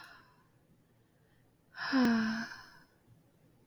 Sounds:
Sigh